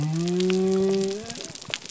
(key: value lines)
label: biophony
recorder: SoundTrap 300